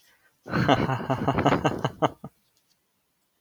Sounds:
Laughter